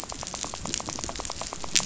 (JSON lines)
{"label": "biophony, rattle", "recorder": "SoundTrap 500"}